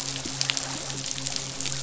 {"label": "biophony, midshipman", "recorder": "SoundTrap 500"}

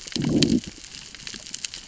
{"label": "biophony, growl", "recorder": "SoundTrap 600 or HydroMoth"}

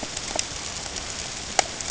{"label": "ambient", "recorder": "HydroMoth"}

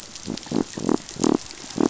{"label": "biophony", "recorder": "SoundTrap 500"}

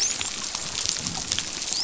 {"label": "biophony, dolphin", "recorder": "SoundTrap 500"}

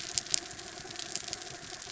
{"label": "anthrophony, mechanical", "recorder": "SoundTrap 300"}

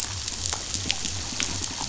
{"label": "biophony", "recorder": "SoundTrap 500"}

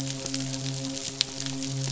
{"label": "biophony, midshipman", "recorder": "SoundTrap 500"}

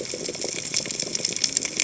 {"label": "biophony, cascading saw", "recorder": "HydroMoth"}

